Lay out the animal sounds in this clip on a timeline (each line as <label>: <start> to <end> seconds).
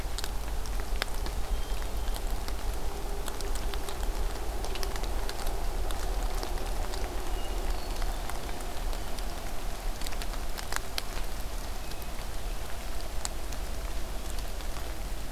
Hermit Thrush (Catharus guttatus): 7.3 to 8.4 seconds